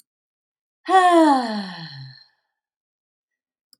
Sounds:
Sigh